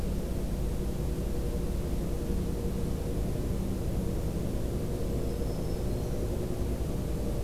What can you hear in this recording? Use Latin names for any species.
Setophaga virens